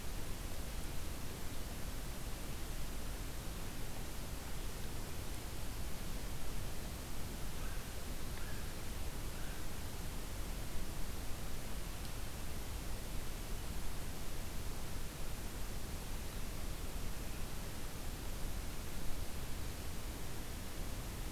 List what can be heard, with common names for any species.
unidentified call